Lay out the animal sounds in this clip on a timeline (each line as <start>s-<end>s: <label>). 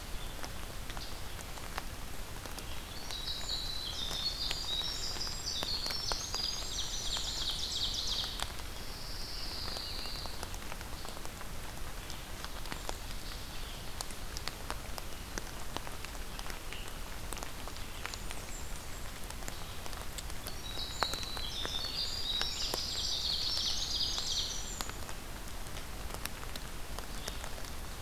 0.0s-28.0s: Red-eyed Vireo (Vireo olivaceus)
2.8s-8.1s: Winter Wren (Troglodytes hiemalis)
5.8s-8.6s: Ovenbird (Seiurus aurocapilla)
6.2s-8.0s: Blackburnian Warbler (Setophaga fusca)
8.4s-10.7s: Pine Warbler (Setophaga pinus)
17.8s-19.2s: Blackburnian Warbler (Setophaga fusca)
20.2s-25.2s: Winter Wren (Troglodytes hiemalis)
22.1s-24.9s: Ovenbird (Seiurus aurocapilla)